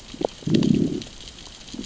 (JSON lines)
{"label": "biophony, growl", "recorder": "SoundTrap 600 or HydroMoth"}